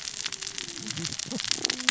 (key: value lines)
label: biophony, cascading saw
recorder: SoundTrap 600 or HydroMoth